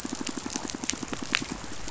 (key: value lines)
label: biophony, pulse
recorder: SoundTrap 500